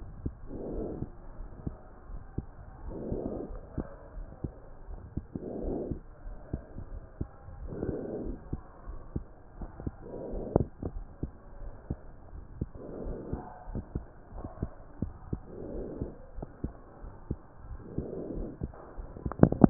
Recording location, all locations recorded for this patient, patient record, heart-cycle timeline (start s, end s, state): aortic valve (AV)
aortic valve (AV)+pulmonary valve (PV)+tricuspid valve (TV)+mitral valve (MV)
#Age: Child
#Sex: Female
#Height: 133.0 cm
#Weight: 47.7 kg
#Pregnancy status: False
#Murmur: Absent
#Murmur locations: nan
#Most audible location: nan
#Systolic murmur timing: nan
#Systolic murmur shape: nan
#Systolic murmur grading: nan
#Systolic murmur pitch: nan
#Systolic murmur quality: nan
#Diastolic murmur timing: nan
#Diastolic murmur shape: nan
#Diastolic murmur grading: nan
#Diastolic murmur pitch: nan
#Diastolic murmur quality: nan
#Outcome: Normal
#Campaign: 2015 screening campaign
0.00	0.36	unannotated
0.36	0.70	diastole
0.70	0.88	S1
0.88	0.94	systole
0.94	1.08	S2
1.08	1.38	diastole
1.38	1.52	S1
1.52	1.64	systole
1.64	1.76	S2
1.76	2.08	diastole
2.08	2.22	S1
2.22	2.34	systole
2.34	2.48	S2
2.48	2.84	diastole
2.84	2.98	S1
2.98	3.04	systole
3.04	3.20	S2
3.20	3.50	diastole
3.50	3.62	S1
3.62	3.74	systole
3.74	3.88	S2
3.88	4.16	diastole
4.16	4.28	S1
4.28	4.40	systole
4.40	4.52	S2
4.52	4.88	diastole
4.88	5.00	S1
5.00	5.10	systole
5.10	5.24	S2
5.24	5.60	diastole
5.60	5.78	S1
5.78	5.88	systole
5.88	5.98	S2
5.98	6.26	diastole
6.26	6.38	S1
6.38	6.50	systole
6.50	6.62	S2
6.62	6.92	diastole
6.92	7.04	S1
7.04	7.16	systole
7.16	7.28	S2
7.28	7.60	diastole
7.60	7.72	S1
7.72	7.84	systole
7.84	7.95	S2
7.95	8.20	diastole
8.20	8.38	S1
8.38	8.48	systole
8.48	8.58	S2
8.58	8.88	diastole
8.88	9.00	S1
9.00	9.14	systole
9.14	9.26	S2
9.26	9.58	diastole
9.58	9.70	S1
9.70	9.80	systole
9.80	9.94	S2
9.94	10.30	diastole
10.30	10.44	S1
10.44	10.57	systole
10.57	10.66	S2
10.66	10.94	diastole
10.94	11.06	S1
11.06	11.18	systole
11.18	11.30	S2
11.30	11.62	diastole
11.62	11.74	S1
11.74	11.86	systole
11.86	11.98	S2
11.98	12.34	diastole
12.34	12.44	S1
12.44	12.56	systole
12.56	12.70	S2
12.70	13.00	diastole
13.00	13.18	S1
13.18	13.28	systole
13.28	13.42	S2
13.42	13.70	diastole
13.70	13.84	S1
13.84	13.92	systole
13.92	14.06	S2
14.06	14.36	diastole
14.36	14.52	S1
14.52	14.58	systole
14.58	14.70	S2
14.70	15.00	diastole
15.00	19.70	unannotated